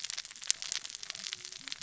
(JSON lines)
{"label": "biophony, cascading saw", "recorder": "SoundTrap 600 or HydroMoth"}